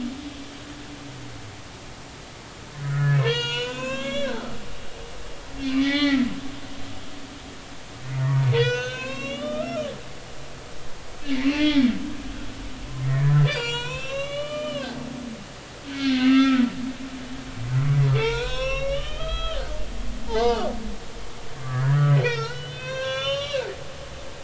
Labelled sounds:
2.8	4.5	humpback whale, 0.90 to 7.0 kHz
5.6	6.3	humpback whale, 0.80 to 4.4 kHz
8.1	9.9	humpback whale, 0.86 to 7.1 kHz
11.3	12.7	humpback whale, 1.9 to 2.8 kHz
13.0	14.9	humpback whale, 0.90 to 7.3 kHz
15.9	16.7	humpback whale, 1.2 to 4.4 kHz
18.1	20.7	humpback whale, 0.83 to 5.9 kHz
21.6	23.7	humpback whale, 0.86 to 6.1 kHz

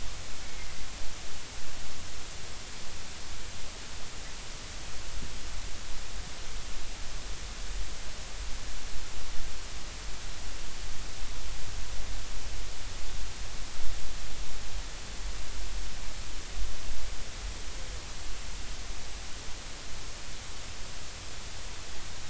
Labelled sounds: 0.4	0.7	humpback whale, 2.0 to 2.3 kHz

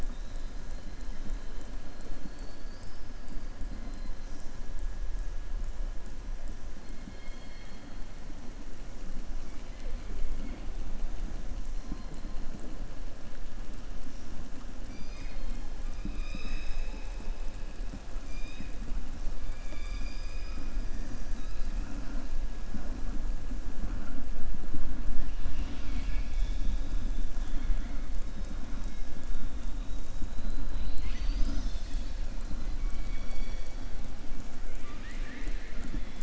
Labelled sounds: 0.0	0.6	killer whale, southern resident, 3.5 to 5.1 kHz
1.9	3.1	killer whale, southern resident, 3.8 to 5.3 kHz
32.8	33.7	killer whale, southern resident, 1.8 to 5.8 kHz

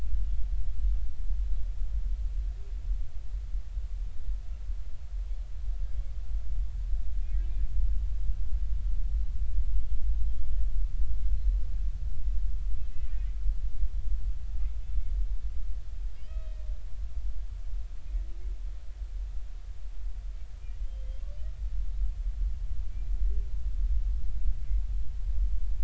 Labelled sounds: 11.3	11.6	humpback whale, 4.0 to 4.2 kHz
16.2	16.7	humpback whale, 1.8 to 2.7 kHz

